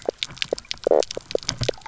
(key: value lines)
label: biophony, knock croak
recorder: SoundTrap 300